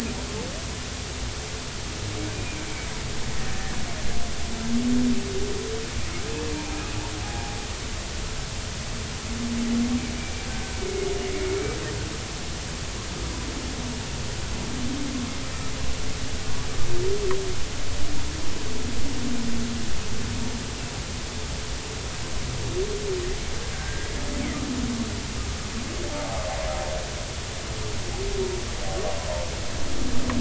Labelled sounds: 3.5	3.8	humpback whale, 1.6 to 1.9 kHz
6.5	7.0	humpback whale, 2.3 to 2.6 kHz
10.5	11.1	humpback whale, 1.5 to 2.3 kHz
23.7	24.1	humpback whale, 1.5 to 1.7 kHz
26.1	26.4	humpback whale, 0.80 to 0.93 kHz

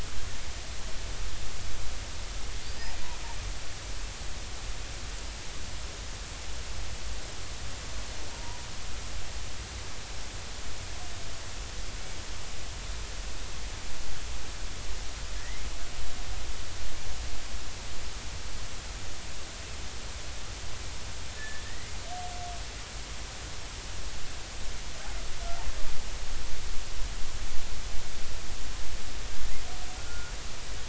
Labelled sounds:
8.3	8.7	killer whale, Bigg's (transient), 0.90 to 1.1 kHz
15.4	15.7	killer whale, Bigg's (transient), 1.7 to 2.2 kHz
21.4	21.6	killer whale, Bigg's (transient), 1.7 to 1.8 kHz
30.0	30.3	killer whale, Bigg's (transient), 1.4 to 1.5 kHz

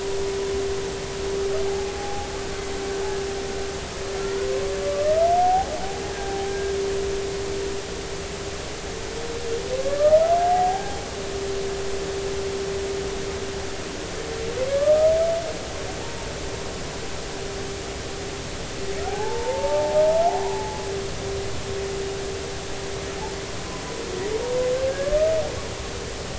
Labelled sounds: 1.7	2.3	humpback whale, 0.80 to 0.90 kHz
4.2	5.7	humpback whale, 0.80 to 1.5 kHz
6.1	6.7	humpback whale, 1.5 to 1.7 kHz
9.9	11.0	humpback whale, 0.80 to 1.9 kHz
19.1	20.0	humpback whale, 0.80 to 0.99 kHz
24.9	25.2	humpback whale, 1.6 to 1.8 kHz

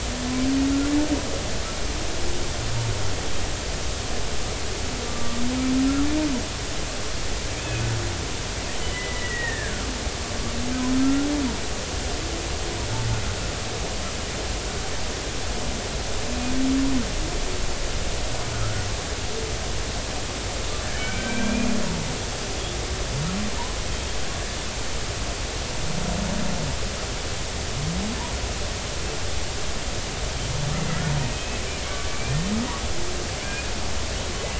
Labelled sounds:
5.0	5.4	killer whale, Bigg's (transient), 1.1 to 1.2 kHz
8.9	9.9	killer whale, Bigg's (transient), 1.2 to 2.0 kHz
11.0	11.3	killer whale, Bigg's (transient), 1.3 to 1.4 kHz
19.5	19.8	humpback whale, 1.2 to 1.5 kHz
21.0	21.7	killer whale, Bigg's (transient), 1.4 to 2.5 kHz
30.7	31.0	killer whale, Bigg's (transient), 1.9 to 2.1 kHz
31.3	32.4	killer whale, Bigg's (transient), 2.2 to 2.7 kHz
33.4	33.7	killer whale, Bigg's (transient), 2.2 to 2.6 kHz

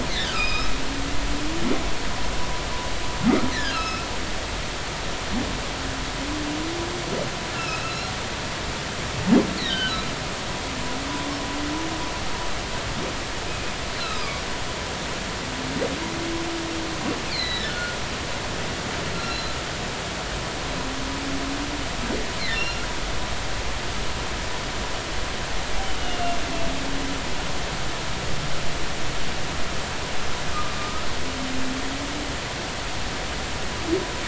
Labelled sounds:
0.3	0.7	humpback whale, 2.4 to 5.3 kHz
3.5	4.1	humpback whale, 1.2 to 5.3 kHz
7.5	8.1	humpback whale, 1.2 to 5.4 kHz
9.7	10.0	humpback whale, 1.4 to 3.2 kHz
13.9	14.4	humpback whale, 0.99 to 4.3 kHz
17.2	18.0	humpback whale, 1.4 to 4.8 kHz
19.2	19.5	humpback whale, 4.0 to 4.2 kHz
22.4	22.9	humpback whale, 1.7 to 2.8 kHz
26.0	26.4	humpback whale, 2.7 to 3.0 kHz
30.5	31.0	humpback whale, 1.1 to 1.3 kHz

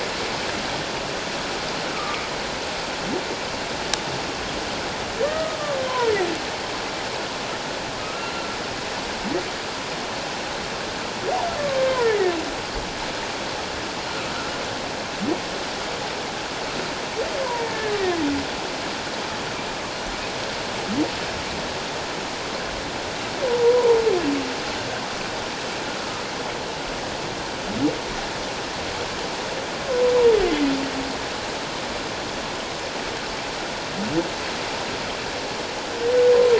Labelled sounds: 1.9	2.2	humpback whale, 1.1 to 1.3 kHz
5.2	5.6	humpback whale, 1.1 to 1.9 kHz
8.0	8.3	humpback whale, 1.2 to 1.4 kHz
11.9	12.3	humpback whale, 1.3 to 2.3 kHz
23.6	24.0	humpback whale, 0.84 to 1.1 kHz

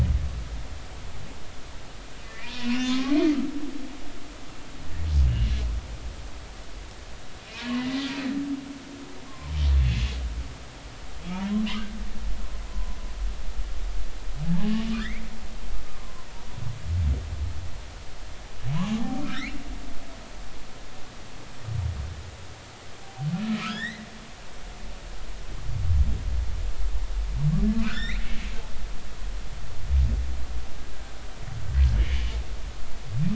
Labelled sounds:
2.2	3.2	humpback whale, 0.99 to 2.9 kHz
5.3	5.5	humpback whale, 2.7 to 3.0 kHz
7.7	8.1	humpback whale, 1.9 to 2.0 kHz
9.3	9.5	humpback whale, 0.90 to 1.2 kHz
11.3	11.6	humpback whale, 0.86 to 1.1 kHz
12.7	13.0	humpback whale, 0.93 to 1.1 kHz
14.4	15.2	humpback whale, 0.80 to 2.4 kHz
16.0	16.2	humpback whale, 0.99 to 1.1 kHz
18.7	19.5	humpback whale, 1.2 to 2.9 kHz
23.6	24.1	humpback whale, 1.2 to 4.2 kHz
27.7	28.2	humpback whale, 1.2 to 5.7 kHz
32.0	32.3	humpback whale, 2.0 to 2.4 kHz

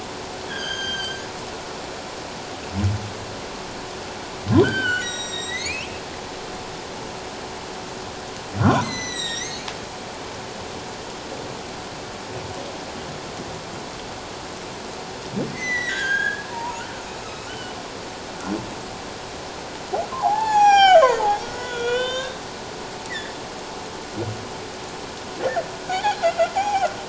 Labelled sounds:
0.5	1.2	humpback whale, 1.4 to 6.5 kHz
4.6	6.0	humpback whale, 1.3 to 8.0 kHz
8.6	9.7	humpback whale, 1.3 to 8.0 kHz
15.5	16.8	humpback whale, 0.88 to 8.0 kHz
17.5	17.8	humpback whale, 1.4 to 3.1 kHz
20.1	22.4	humpback whale, 0.78 to 7.7 kHz
23.1	23.3	humpback whale, 1.6 to 2.1 kHz
25.9	26.9	humpback whale, 0.78 to 3.6 kHz

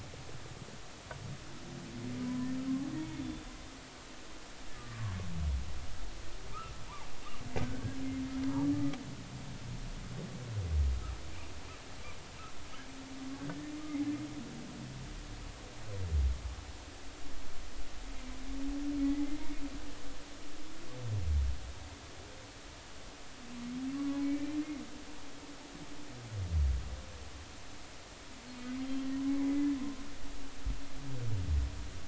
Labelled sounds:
2.2	2.5	humpback whale, 0.96 to 1.1 kHz
3.0	3.5	humpback whale, 3.2 to 3.6 kHz
4.8	5.2	humpback whale, 0.99 to 1.3 kHz
13.5	13.7	humpback whale, 1.7 to 1.9 kHz
24.2	24.5	humpback whale, 2.2 to 2.5 kHz
29.4	29.7	humpback whale, 2.0 to 2.3 kHz

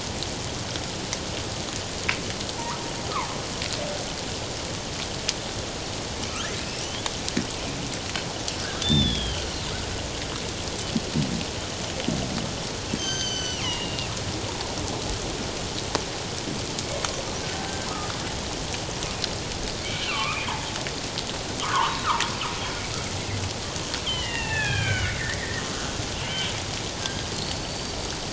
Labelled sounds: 6.6	6.9	killer whale, northern resident, G clan, 5.0 to 6.0 kHz
8.8	9.4	killer whale, northern resident, G clan, 3.0 to 3.7 kHz
13.0	14.1	killer whale, northern resident, G clan, 1.5 to 6.4 kHz
17.4	17.7	killer whale, northern resident, G clan, 1.5 to 1.6 kHz
20.1	20.5	killer whale, northern resident, G clan, 1.0 to 2.7 kHz
21.6	22.1	killer whale, northern resident, G clan, 0.84 to 3.9 kHz
24.0	25.9	killer whale, northern resident, G clan, 0.78 to 3.6 kHz
27.0	28.2	killer whale, northern resident, G clan, 1.5 to 4.8 kHz

